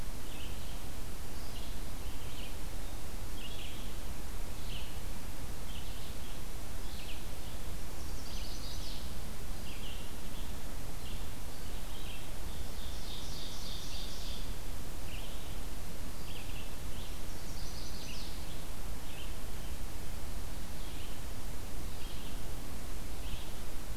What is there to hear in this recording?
Red-eyed Vireo, Chestnut-sided Warbler, Ovenbird